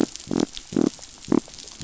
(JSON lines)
{"label": "biophony", "recorder": "SoundTrap 500"}